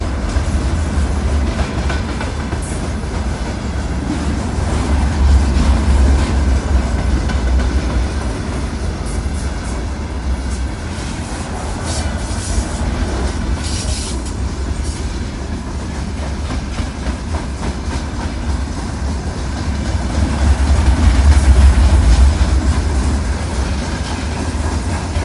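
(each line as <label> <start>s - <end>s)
A train locomotive sounds in an erratic pattern. 0.0s - 25.2s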